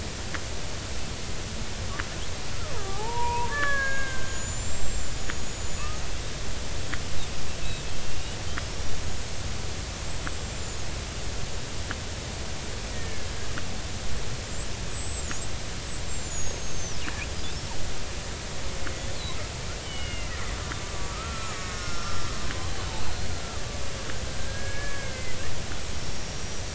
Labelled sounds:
2.7	5.9	killer whale, Bigg's (transient), 0.80 to 7.6 kHz
8.1	8.9	killer whale, Bigg's (transient), 2.7 to 5.9 kHz
10.0	10.8	killer whale, Bigg's (transient), 6.8 to 7.9 kHz
12.9	13.3	killer whale, Bigg's (transient), 1.6 to 2.0 kHz
14.9	17.0	killer whale, Bigg's (transient), 5.5 to 8.0 kHz
19.8	22.2	killer whale, Bigg's (transient), 1.1 to 3.1 kHz
23.0	23.3	killer whale, Bigg's (transient), 4.1 to 4.3 kHz
24.4	25.2	killer whale, Bigg's (transient), 1.5 to 2.3 kHz
26.0	26.6	killer whale, Bigg's (transient), 5.4 to 5.8 kHz

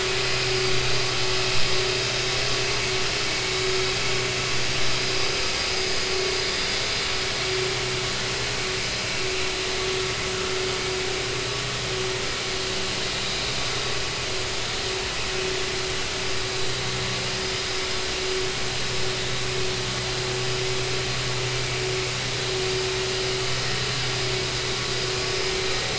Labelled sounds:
3.3	3.6	vessel noise, 2.2 to 2.3 kHz

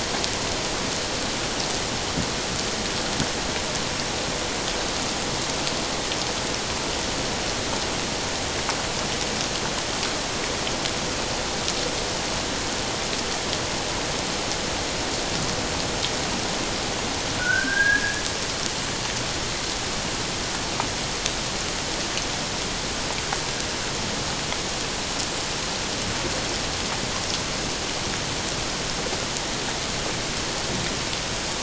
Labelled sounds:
17.4	18.2	sonar likely from a naval vessel, 1.4 to 1.8 kHz

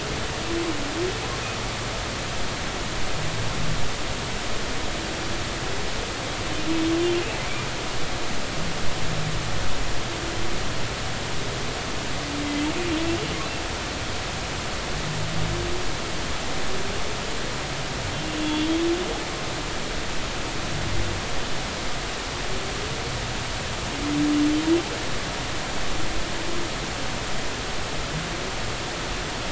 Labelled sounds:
18.4	18.7	humpback whale, 3.3 to 3.5 kHz

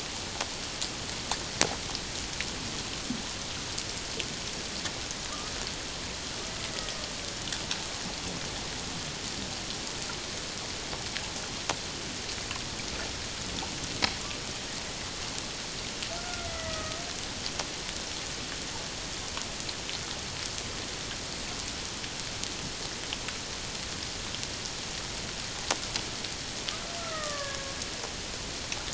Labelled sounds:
16.2	17.0	killer whale, Bigg's (transient), 1.2 to 2.1 kHz
27.0	27.7	killer whale, Bigg's (transient), 1.1 to 2.0 kHz

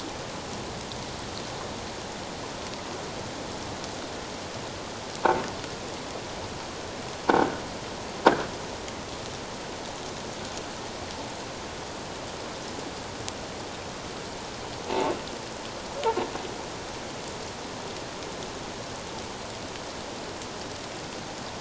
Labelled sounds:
7.3	7.5	croaking sound likely from a nearby submerged object, 1.4 to 1.6 kHz
14.8	15.1	croaking sound likely from a nearby submerged object, 0.84 to 0.94 kHz

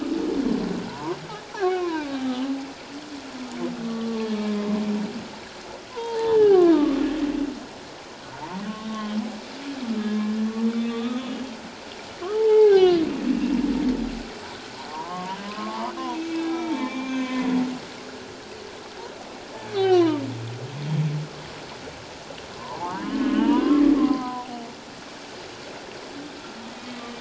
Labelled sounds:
0.9	1.2	humpback whale, 0.84 to 1.2 kHz
1.5	2.2	humpback whale, 0.78 to 1.8 kHz
3.8	4.8	humpback whale, 0.97 to 1.2 kHz
5.9	7.0	humpback whale, 0.78 to 1.9 kHz
8.9	9.2	humpback whale, 1.0 to 3.3 kHz
10.0	11.3	humpback whale, 1.1 to 3.9 kHz
12.3	13.5	humpback whale, 0.78 to 3.6 kHz
14.9	15.9	humpback whale, 0.81 to 1.3 kHz
16.4	17.5	humpback whale, 0.84 to 3.8 kHz
19.7	20.2	humpback whale, 0.88 to 4.1 kHz
22.5	24.5	humpback whale, 0.78 to 3.2 kHz

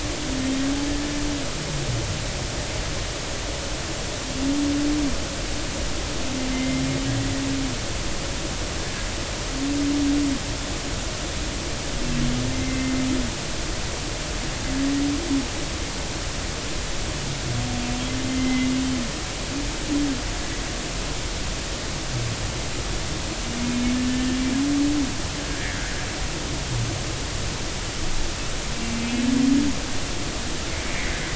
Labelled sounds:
6.5	6.8	humpback whale, 2.0 to 2.1 kHz
12.5	12.9	humpback whale, 2.0 to 2.1 kHz
18.3	18.7	humpback whale, 2.0 to 3.2 kHz
25.5	25.8	humpback whale, 1.6 to 2.0 kHz

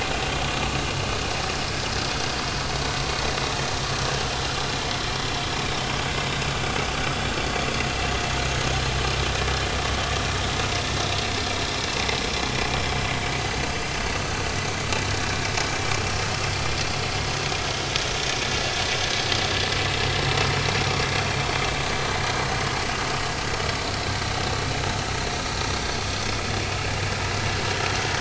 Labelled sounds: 7.2	7.6	vessel noise, 4.3 to 4.5 kHz
26.1	26.4	vessel noise, 2.5 to 2.6 kHz

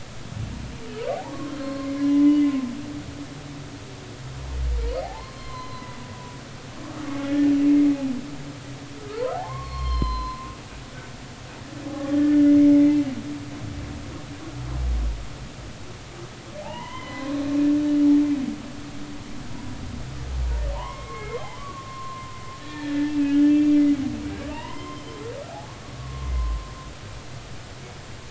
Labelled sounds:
1.1	2.5	humpback whale, 0.80 to 4.3 kHz
5.0	6.0	humpback whale, 0.80 to 4.3 kHz
7.3	7.5	humpback whale, 1.6 to 1.9 kHz
9.4	10.5	humpback whale, 0.93 to 5.3 kHz
11.9	13.0	humpback whale, 0.80 to 2.3 kHz
16.6	17.3	humpback whale, 0.80 to 3.2 kHz
20.7	22.3	humpback whale, 0.80 to 3.2 kHz
22.6	23.7	humpback whale, 1.7 to 3.4 kHz
24.2	25.2	humpback whale, 0.83 to 3.2 kHz
25.5	26.6	humpback whale, 0.80 to 1.2 kHz

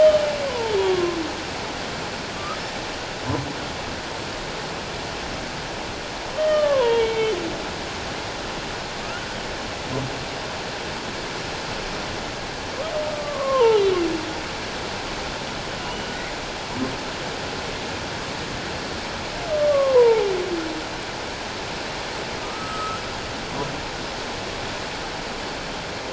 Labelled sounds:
2.3	2.6	humpback whale, 1.1 to 1.4 kHz
6.4	7.4	humpback whale, 0.88 to 3.5 kHz
13.1	13.8	humpback whale, 0.81 to 1.3 kHz
15.8	16.1	humpback whale, 2.8 to 3.0 kHz
19.7	20.3	humpback whale, 0.81 to 1.2 kHz
22.4	23.0	humpback whale, 1.2 to 1.4 kHz

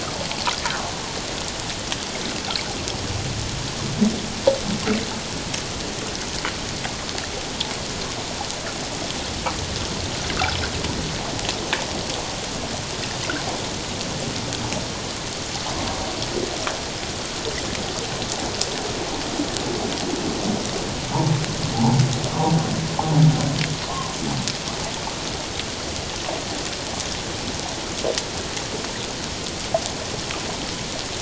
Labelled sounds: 21.7	22.0	humpback whale, 0.78 to 1.0 kHz

